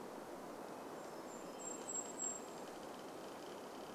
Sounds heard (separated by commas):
Varied Thrush song, unidentified sound, tree creak, Golden-crowned Kinglet song